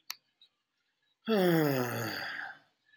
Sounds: Sigh